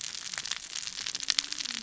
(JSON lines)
{"label": "biophony, cascading saw", "recorder": "SoundTrap 600 or HydroMoth"}